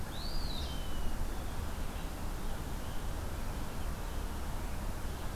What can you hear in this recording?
Eastern Wood-Pewee